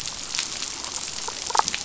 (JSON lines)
{"label": "biophony, damselfish", "recorder": "SoundTrap 500"}